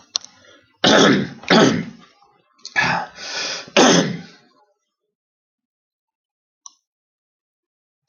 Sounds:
Throat clearing